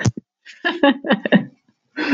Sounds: Laughter